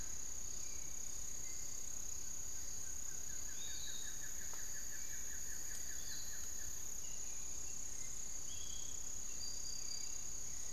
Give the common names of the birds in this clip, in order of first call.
Hauxwell's Thrush, Piratic Flycatcher, Buff-throated Woodcreeper